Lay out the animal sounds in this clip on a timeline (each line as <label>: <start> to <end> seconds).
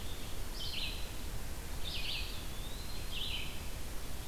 Red-eyed Vireo (Vireo olivaceus): 0.0 to 4.3 seconds
Eastern Wood-Pewee (Contopus virens): 1.9 to 3.3 seconds